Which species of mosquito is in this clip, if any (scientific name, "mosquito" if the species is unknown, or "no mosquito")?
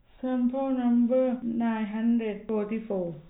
no mosquito